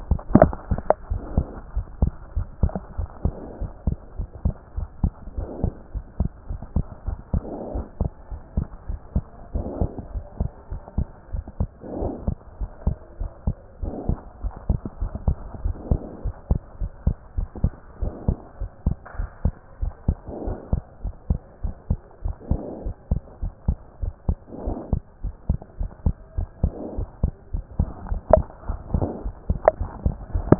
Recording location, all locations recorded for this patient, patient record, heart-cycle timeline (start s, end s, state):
pulmonary valve (PV)
aortic valve (AV)+pulmonary valve (PV)+tricuspid valve (TV)+mitral valve (MV)
#Age: Child
#Sex: Male
#Height: 102.0 cm
#Weight: 17.5 kg
#Pregnancy status: False
#Murmur: Absent
#Murmur locations: nan
#Most audible location: nan
#Systolic murmur timing: nan
#Systolic murmur shape: nan
#Systolic murmur grading: nan
#Systolic murmur pitch: nan
#Systolic murmur quality: nan
#Diastolic murmur timing: nan
#Diastolic murmur shape: nan
#Diastolic murmur grading: nan
#Diastolic murmur pitch: nan
#Diastolic murmur quality: nan
#Outcome: Normal
#Campaign: 2014 screening campaign
0.00	0.08	S2
0.08	0.32	diastole
0.32	0.54	S1
0.54	0.70	systole
0.70	0.84	S2
0.84	1.10	diastole
1.10	1.22	S1
1.22	1.34	systole
1.34	1.48	S2
1.48	1.74	diastole
1.74	1.86	S1
1.86	2.00	systole
2.00	2.14	S2
2.14	2.36	diastole
2.36	2.48	S1
2.48	2.62	systole
2.62	2.74	S2
2.74	2.98	diastole
2.98	3.08	S1
3.08	3.24	systole
3.24	3.36	S2
3.36	3.60	diastole
3.60	3.72	S1
3.72	3.86	systole
3.86	3.96	S2
3.96	4.18	diastole
4.18	4.28	S1
4.28	4.44	systole
4.44	4.54	S2
4.54	4.76	diastole
4.76	4.88	S1
4.88	5.02	systole
5.02	5.12	S2
5.12	5.36	diastole
5.36	5.48	S1
5.48	5.62	systole
5.62	5.74	S2
5.74	5.96	diastole
5.96	6.06	S1
6.06	6.20	systole
6.20	6.30	S2
6.30	6.50	diastole
6.50	6.60	S1
6.60	6.74	systole
6.74	6.84	S2
6.84	7.06	diastole
7.06	7.18	S1
7.18	7.34	systole
7.34	7.46	S2
7.46	7.72	diastole
7.72	7.86	S1
7.86	8.00	systole
8.00	8.10	S2
8.10	8.32	diastole
8.32	8.42	S1
8.42	8.56	systole
8.56	8.66	S2
8.66	8.90	diastole
8.90	9.00	S1
9.00	9.14	systole
9.14	9.26	S2
9.26	9.54	diastole
9.54	9.66	S1
9.66	9.78	systole
9.78	9.90	S2
9.90	10.12	diastole
10.12	10.24	S1
10.24	10.38	systole
10.38	10.50	S2
10.50	10.72	diastole
10.72	10.82	S1
10.82	10.98	systole
10.98	11.08	S2
11.08	11.32	diastole
11.32	11.44	S1
11.44	11.60	systole
11.60	11.70	S2
11.70	11.96	diastole
11.96	12.14	S1
12.14	12.26	systole
12.26	12.36	S2
12.36	12.60	diastole
12.60	12.70	S1
12.70	12.86	systole
12.86	12.96	S2
12.96	13.20	diastole
13.20	13.30	S1
13.30	13.46	systole
13.46	13.56	S2
13.56	13.82	diastole
13.82	13.94	S1
13.94	14.08	systole
14.08	14.20	S2
14.20	14.42	diastole
14.42	14.54	S1
14.54	14.68	systole
14.68	14.80	S2
14.80	15.00	diastole
15.00	15.12	S1
15.12	15.26	systole
15.26	15.38	S2
15.38	15.62	diastole
15.62	15.76	S1
15.76	15.90	systole
15.90	16.02	S2
16.02	16.24	diastole
16.24	16.34	S1
16.34	16.50	systole
16.50	16.62	S2
16.62	16.82	diastole
16.82	16.92	S1
16.92	17.06	systole
17.06	17.16	S2
17.16	17.38	diastole
17.38	17.48	S1
17.48	17.62	systole
17.62	17.74	S2
17.74	18.00	diastole
18.00	18.14	S1
18.14	18.26	systole
18.26	18.36	S2
18.36	18.60	diastole
18.60	18.70	S1
18.70	18.86	systole
18.86	18.96	S2
18.96	19.18	diastole
19.18	19.30	S1
19.30	19.44	systole
19.44	19.54	S2
19.54	19.80	diastole
19.80	19.92	S1
19.92	20.06	systole
20.06	20.18	S2
20.18	20.44	diastole
20.44	20.58	S1
20.58	20.72	systole
20.72	20.82	S2
20.82	21.04	diastole
21.04	21.14	S1
21.14	21.28	systole
21.28	21.40	S2
21.40	21.64	diastole
21.64	21.74	S1
21.74	21.90	systole
21.90	22.00	S2
22.00	22.24	diastole
22.24	22.36	S1
22.36	22.50	systole
22.50	22.62	S2
22.62	22.84	diastole
22.84	22.94	S1
22.94	23.10	systole
23.10	23.20	S2
23.20	23.42	diastole
23.42	23.52	S1
23.52	23.66	systole
23.66	23.78	S2
23.78	24.02	diastole
24.02	24.14	S1
24.14	24.28	systole
24.28	24.38	S2
24.38	24.64	diastole
24.64	24.76	S1
24.76	24.90	systole
24.90	25.02	S2
25.02	25.24	diastole
25.24	25.34	S1
25.34	25.48	systole
25.48	25.58	S2
25.58	25.80	diastole
25.80	25.90	S1
25.90	26.04	systole
26.04	26.14	S2
26.14	26.38	diastole
26.38	26.48	S1
26.48	26.62	systole
26.62	26.74	S2
26.74	26.96	diastole
26.96	27.08	S1
27.08	27.22	systole
27.22	27.32	S2
27.32	27.54	diastole
27.54	27.64	S1
27.64	27.78	systole
27.78	27.90	S2
27.90	28.10	diastole
28.10	28.20	S1
28.20	28.30	systole
28.30	28.44	S2
28.44	28.68	diastole
28.68	28.80	S1
28.80	28.92	systole
28.92	29.10	S2
29.10	29.26	diastole
29.26	29.36	S1
29.36	29.48	systole
29.48	29.60	S2
29.60	29.80	diastole
29.80	29.90	S1
29.90	30.04	systole
30.04	30.14	S2
30.14	30.34	diastole
30.34	30.50	S1
30.50	30.59	systole